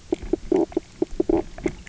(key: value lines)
label: biophony, knock croak
recorder: SoundTrap 300